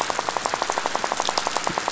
{"label": "biophony, rattle", "recorder": "SoundTrap 500"}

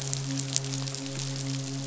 {"label": "biophony, midshipman", "recorder": "SoundTrap 500"}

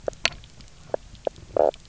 {"label": "biophony, knock croak", "recorder": "SoundTrap 300"}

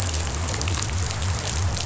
{"label": "biophony", "recorder": "SoundTrap 500"}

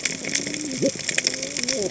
{"label": "biophony, cascading saw", "recorder": "HydroMoth"}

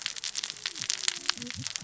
{"label": "biophony, cascading saw", "recorder": "SoundTrap 600 or HydroMoth"}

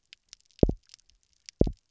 {"label": "biophony, double pulse", "recorder": "SoundTrap 300"}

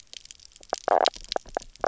{"label": "biophony, knock croak", "recorder": "SoundTrap 300"}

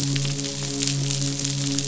{"label": "biophony, midshipman", "recorder": "SoundTrap 500"}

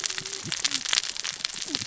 {"label": "biophony, cascading saw", "recorder": "SoundTrap 600 or HydroMoth"}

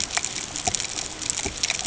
{"label": "ambient", "recorder": "HydroMoth"}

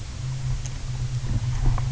{"label": "anthrophony, boat engine", "recorder": "SoundTrap 300"}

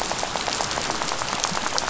{"label": "biophony, rattle", "recorder": "SoundTrap 500"}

